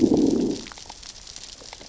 {"label": "biophony, growl", "recorder": "SoundTrap 600 or HydroMoth"}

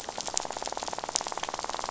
{"label": "biophony, rattle", "recorder": "SoundTrap 500"}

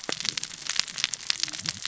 {"label": "biophony, cascading saw", "recorder": "SoundTrap 600 or HydroMoth"}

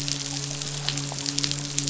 {"label": "biophony, midshipman", "recorder": "SoundTrap 500"}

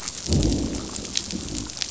{"label": "biophony, growl", "recorder": "SoundTrap 500"}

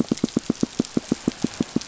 {"label": "biophony, pulse", "recorder": "SoundTrap 500"}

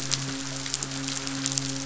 {"label": "biophony, midshipman", "recorder": "SoundTrap 500"}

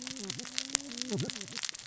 {"label": "biophony, cascading saw", "recorder": "SoundTrap 600 or HydroMoth"}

